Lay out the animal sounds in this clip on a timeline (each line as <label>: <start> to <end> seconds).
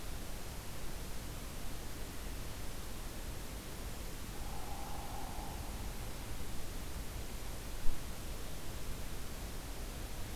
Hairy Woodpecker (Dryobates villosus): 4.3 to 5.6 seconds